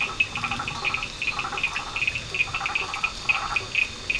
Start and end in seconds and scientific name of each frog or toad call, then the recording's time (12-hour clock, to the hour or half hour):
0.0	4.0	Boana prasina
0.0	4.1	Boana faber
0.0	4.1	Elachistocleis bicolor
0.0	4.1	Sphaenorhynchus surdus
~11pm